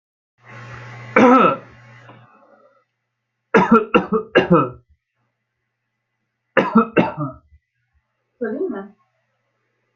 {"expert_labels": [{"quality": "ok", "cough_type": "dry", "dyspnea": false, "wheezing": false, "stridor": false, "choking": false, "congestion": false, "nothing": true, "diagnosis": "healthy cough", "severity": "pseudocough/healthy cough"}], "age": 22, "gender": "male", "respiratory_condition": false, "fever_muscle_pain": false, "status": "healthy"}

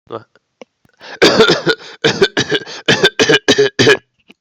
{"expert_labels": [{"quality": "good", "cough_type": "dry", "dyspnea": false, "wheezing": false, "stridor": false, "choking": false, "congestion": false, "nothing": true, "diagnosis": "COVID-19", "severity": "mild"}], "age": 40, "gender": "male", "respiratory_condition": false, "fever_muscle_pain": false, "status": "COVID-19"}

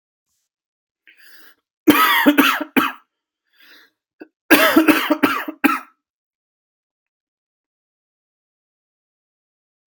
{"expert_labels": [{"quality": "good", "cough_type": "dry", "dyspnea": false, "wheezing": false, "stridor": false, "choking": false, "congestion": false, "nothing": true, "diagnosis": "obstructive lung disease", "severity": "mild"}], "age": 39, "gender": "male", "respiratory_condition": false, "fever_muscle_pain": true, "status": "symptomatic"}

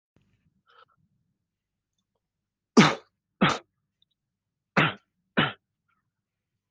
{"expert_labels": [{"quality": "good", "cough_type": "dry", "dyspnea": false, "wheezing": false, "stridor": false, "choking": false, "congestion": false, "nothing": true, "diagnosis": "upper respiratory tract infection", "severity": "mild"}], "age": 27, "gender": "male", "respiratory_condition": false, "fever_muscle_pain": false, "status": "healthy"}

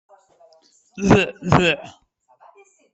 {"expert_labels": [{"quality": "no cough present", "dyspnea": false, "wheezing": false, "stridor": false, "choking": false, "congestion": false, "nothing": false}], "age": 96, "gender": "female", "respiratory_condition": true, "fever_muscle_pain": false, "status": "COVID-19"}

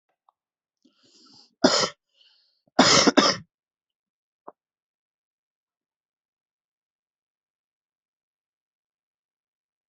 {"expert_labels": [{"quality": "good", "cough_type": "wet", "dyspnea": false, "wheezing": false, "stridor": false, "choking": false, "congestion": false, "nothing": true, "diagnosis": "lower respiratory tract infection", "severity": "mild"}], "age": 24, "gender": "male", "respiratory_condition": false, "fever_muscle_pain": false, "status": "healthy"}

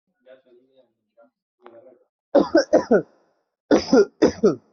{"expert_labels": [{"quality": "good", "cough_type": "wet", "dyspnea": false, "wheezing": false, "stridor": false, "choking": false, "congestion": false, "nothing": true, "diagnosis": "lower respiratory tract infection", "severity": "unknown"}], "age": 21, "gender": "male", "respiratory_condition": false, "fever_muscle_pain": false, "status": "healthy"}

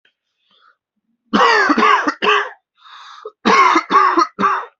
{"expert_labels": [{"quality": "good", "cough_type": "dry", "dyspnea": false, "wheezing": false, "stridor": false, "choking": false, "congestion": false, "nothing": true, "diagnosis": "upper respiratory tract infection", "severity": "mild"}], "age": 28, "gender": "male", "respiratory_condition": false, "fever_muscle_pain": false, "status": "symptomatic"}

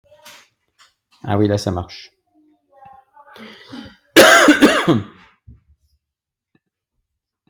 {"expert_labels": [{"quality": "ok", "cough_type": "dry", "dyspnea": false, "wheezing": false, "stridor": false, "choking": false, "congestion": false, "nothing": true, "diagnosis": "upper respiratory tract infection", "severity": "mild"}], "age": 38, "gender": "male", "respiratory_condition": false, "fever_muscle_pain": false, "status": "symptomatic"}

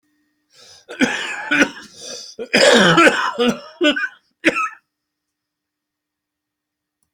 {"expert_labels": [{"quality": "good", "cough_type": "wet", "dyspnea": true, "wheezing": true, "stridor": false, "choking": false, "congestion": false, "nothing": false, "diagnosis": "lower respiratory tract infection", "severity": "severe"}], "age": 65, "gender": "male", "respiratory_condition": true, "fever_muscle_pain": false, "status": "symptomatic"}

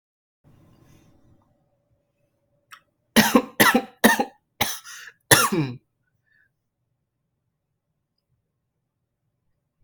{"expert_labels": [{"quality": "ok", "cough_type": "dry", "dyspnea": false, "wheezing": false, "stridor": false, "choking": false, "congestion": false, "nothing": true, "diagnosis": "COVID-19", "severity": "mild"}], "age": 25, "gender": "male", "respiratory_condition": false, "fever_muscle_pain": true, "status": "symptomatic"}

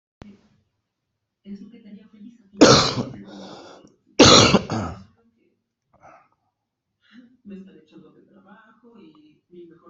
{"expert_labels": [{"quality": "good", "cough_type": "wet", "dyspnea": false, "wheezing": false, "stridor": false, "choking": false, "congestion": false, "nothing": true, "diagnosis": "healthy cough", "severity": "pseudocough/healthy cough"}], "age": 39, "gender": "male", "respiratory_condition": true, "fever_muscle_pain": true, "status": "symptomatic"}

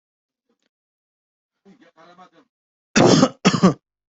{"expert_labels": [{"quality": "good", "cough_type": "dry", "dyspnea": false, "wheezing": false, "stridor": false, "choking": false, "congestion": false, "nothing": true, "diagnosis": "healthy cough", "severity": "pseudocough/healthy cough"}], "age": 29, "gender": "male", "respiratory_condition": false, "fever_muscle_pain": false, "status": "symptomatic"}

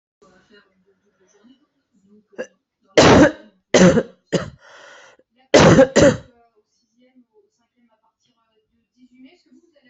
{"expert_labels": [{"quality": "ok", "cough_type": "dry", "dyspnea": false, "wheezing": false, "stridor": false, "choking": false, "congestion": false, "nothing": true, "diagnosis": "COVID-19", "severity": "mild"}], "age": 37, "gender": "female", "respiratory_condition": false, "fever_muscle_pain": false, "status": "healthy"}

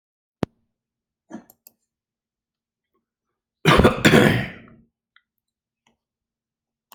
{"expert_labels": [{"quality": "good", "cough_type": "wet", "dyspnea": false, "wheezing": false, "stridor": false, "choking": false, "congestion": false, "nothing": true, "diagnosis": "obstructive lung disease", "severity": "mild"}], "age": 60, "gender": "male", "respiratory_condition": false, "fever_muscle_pain": false, "status": "healthy"}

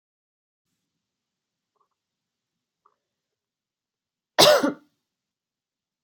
{"expert_labels": [{"quality": "good", "cough_type": "dry", "dyspnea": false, "wheezing": false, "stridor": false, "choking": false, "congestion": false, "nothing": true, "diagnosis": "healthy cough", "severity": "pseudocough/healthy cough"}], "age": 39, "gender": "female", "respiratory_condition": true, "fever_muscle_pain": true, "status": "COVID-19"}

